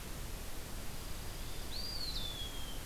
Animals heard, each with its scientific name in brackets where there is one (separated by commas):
Eastern Wood-Pewee (Contopus virens), Dark-eyed Junco (Junco hyemalis)